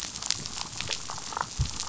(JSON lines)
{"label": "biophony, damselfish", "recorder": "SoundTrap 500"}